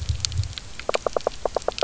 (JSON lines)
{"label": "biophony", "recorder": "SoundTrap 300"}